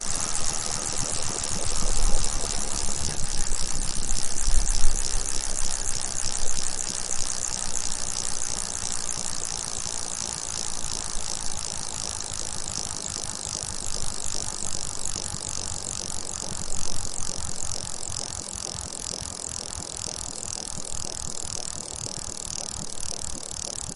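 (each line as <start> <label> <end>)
0.0 A bicycle wheel spinning. 24.0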